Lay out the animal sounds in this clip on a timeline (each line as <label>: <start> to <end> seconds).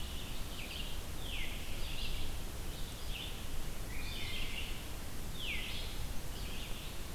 Red-eyed Vireo (Vireo olivaceus): 0.0 to 7.1 seconds
Veery (Catharus fuscescens): 1.1 to 1.6 seconds
Wood Thrush (Hylocichla mustelina): 3.9 to 4.4 seconds
Veery (Catharus fuscescens): 5.3 to 5.8 seconds